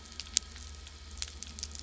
{"label": "anthrophony, boat engine", "recorder": "SoundTrap 300"}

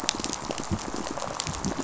{"label": "biophony, pulse", "recorder": "SoundTrap 500"}
{"label": "biophony, rattle response", "recorder": "SoundTrap 500"}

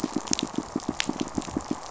{"label": "biophony, pulse", "recorder": "SoundTrap 500"}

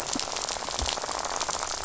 {"label": "biophony, rattle", "recorder": "SoundTrap 500"}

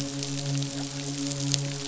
{"label": "biophony, midshipman", "recorder": "SoundTrap 500"}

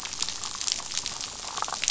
{"label": "biophony, damselfish", "recorder": "SoundTrap 500"}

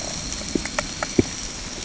{"label": "ambient", "recorder": "HydroMoth"}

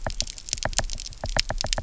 {"label": "biophony, knock", "recorder": "SoundTrap 300"}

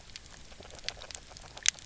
{"label": "biophony, grazing", "recorder": "SoundTrap 300"}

